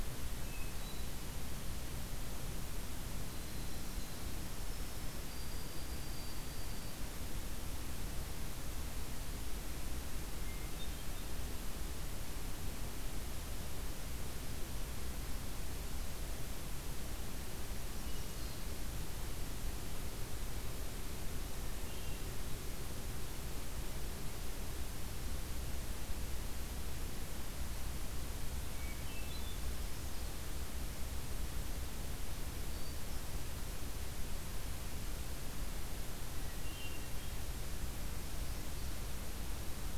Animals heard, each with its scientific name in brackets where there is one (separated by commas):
Hermit Thrush (Catharus guttatus), White-throated Sparrow (Zonotrichia albicollis), Magnolia Warbler (Setophaga magnolia)